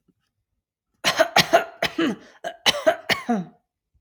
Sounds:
Cough